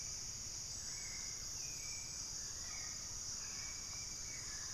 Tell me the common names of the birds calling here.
Hauxwell's Thrush